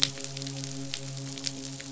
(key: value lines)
label: biophony, midshipman
recorder: SoundTrap 500